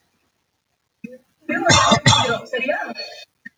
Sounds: Cough